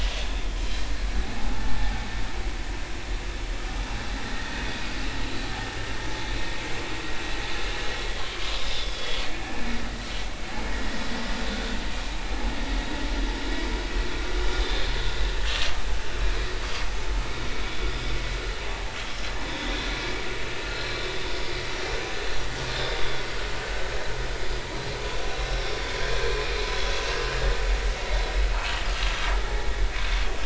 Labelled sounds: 1.4	1.6	vessel noise, 0.80 to 0.93 kHz
8.1	9.6	vessel noise, 1.7 to 5.3 kHz
11.5	11.8	vessel noise, 1.4 to 1.5 kHz
14.6	15.7	vessel noise, 1.0 to 3.7 kHz
20.6	20.9	vessel noise, 4.1 to 4.3 kHz
23.0	23.2	vessel noise, 3.4 to 3.6 kHz
25.5	25.8	vessel noise, 5.3 to 5.6 kHz

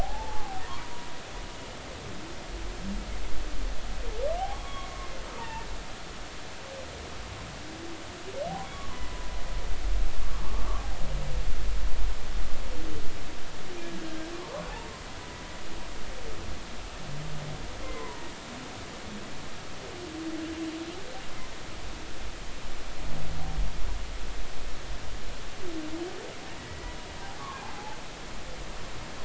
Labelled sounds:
0.0	1.1	humpback whale, 0.80 to 1.0 kHz
4.4	4.9	humpback whale, 0.80 to 3.4 kHz
5.4	5.7	humpback whale, 0.83 to 1.9 kHz
8.7	9.3	humpback whale, 0.96 to 2.0 kHz
10.5	10.8	humpback whale, 1.0 to 1.2 kHz
13.8	14.7	humpback whale, 0.80 to 1.7 kHz
18.0	18.3	humpback whale, 0.86 to 1.1 kHz
26.6	27.0	humpback whale, 1.9 to 2.0 kHz
27.6	28.0	humpback whale, 0.80 to 0.93 kHz

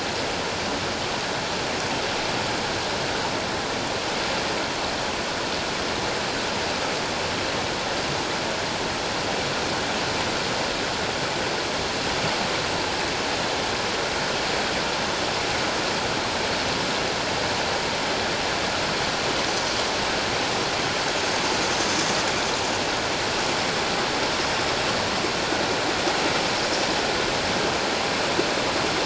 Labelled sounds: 21.7	21.9	vessel noise, 6.3 to 6.6 kHz

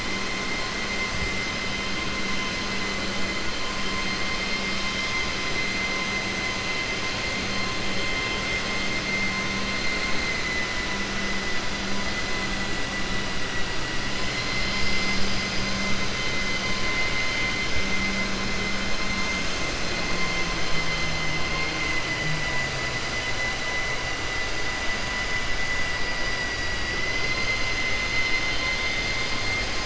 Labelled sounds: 21.4	22.2	vessel noise, 1.1 to 4.6 kHz
26.1	27.8	vessel noise, 1.4 to 5.5 kHz

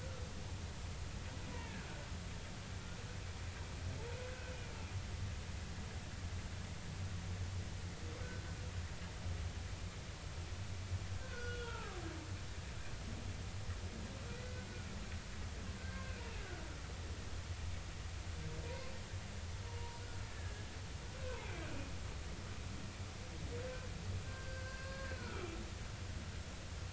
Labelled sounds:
1.4	1.9	humpback whale, 0.90 to 2.5 kHz
4.3	4.5	humpback whale, 1.4 to 1.6 kHz
8.2	8.5	humpback whale, 4.0 to 4.2 kHz
11.2	12.0	humpback whale, 0.80 to 3.4 kHz
14.3	14.7	humpback whale, 1.5 to 2.1 kHz
15.8	16.6	humpback whale, 1.4 to 2.3 kHz
18.6	18.9	humpback whale, 0.90 to 1.1 kHz
19.7	20.7	humpback whale, 0.90 to 1.8 kHz
21.2	21.5	humpback whale, 2.5 to 2.7 kHz
24.2	25.5	humpback whale, 1.2 to 4.3 kHz

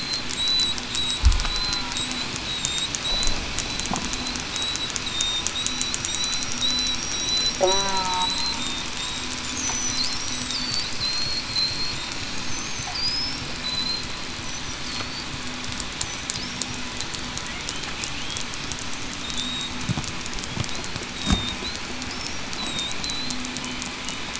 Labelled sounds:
0.3	0.8	killer whale, southern resident, 3.8 to 4.1 kHz
1.4	2.9	killer whale, southern resident, 3.6 to 8.0 kHz
4.5	6.5	killer whale, southern resident, 3.6 to 4.1 kHz
6.9	7.3	killer whale, southern resident, 5.6 to 8.0 kHz
7.5	8.6	killer whale, southern resident, 3.8 to 5.9 kHz
9.6	10.0	killer whale, southern resident, 5.9 to 6.1 kHz
10.3	10.7	killer whale, southern resident, 3.5 to 3.9 kHz
11.0	11.8	killer whale, southern resident, 3.9 to 8.0 kHz
13.6	14.0	killer whale, southern resident, 3.9 to 8.0 kHz
19.2	19.7	killer whale, southern resident, 3.6 to 3.8 kHz
21.1	21.5	killer whale, southern resident, 3.6 to 3.8 kHz
22.6	23.4	killer whale, southern resident, 3.6 to 4.1 kHz

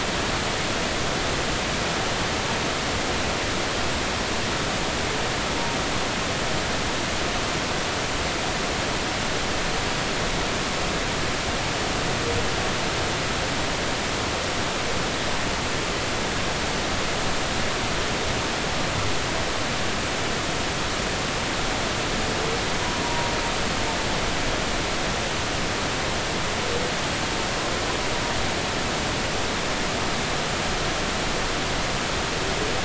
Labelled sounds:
23.0	23.3	humpback whale, 0.90 to 0.99 kHz

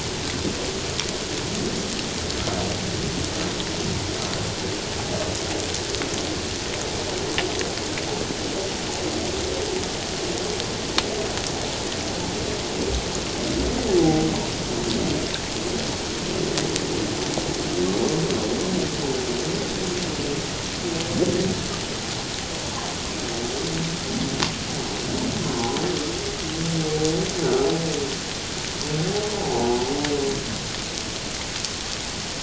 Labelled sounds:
14.0	14.3	humpback whale, 0.78 to 0.84 kHz
29.3	29.7	humpback whale, 0.78 to 1.0 kHz

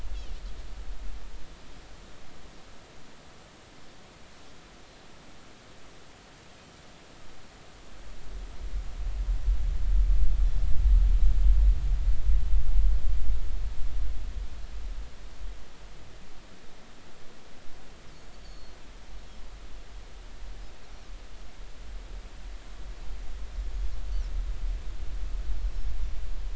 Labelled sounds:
18.4	18.8	Pacific white-sided dolphin, 4.2 to 4.6 kHz

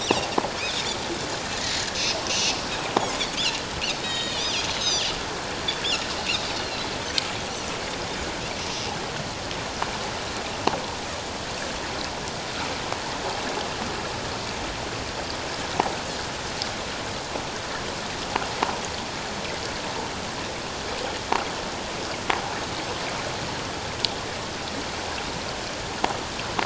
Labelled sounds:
2.3	2.6	Pacific white-sided dolphin, 2.5 to 3.0 kHz
4.0	5.1	Pacific white-sided dolphin, 1.8 to 7.0 kHz
6.6	6.9	Pacific white-sided dolphin, 3.9 to 4.4 kHz

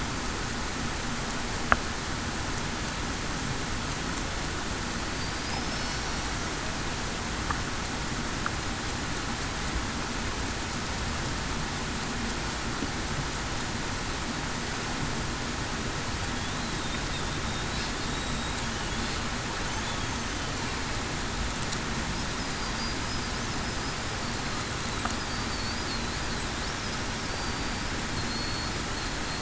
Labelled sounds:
5.7	6.0	killer whale, Bigg's (transient), 5.3 to 5.6 kHz
27.3	27.7	killer whale, Bigg's (transient), 4.6 to 4.7 kHz
28.2	28.7	killer whale, Bigg's (transient), 4.2 to 4.4 kHz

